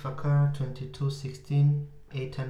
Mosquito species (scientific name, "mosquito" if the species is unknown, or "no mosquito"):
Anopheles arabiensis